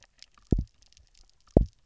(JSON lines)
{"label": "biophony, double pulse", "recorder": "SoundTrap 300"}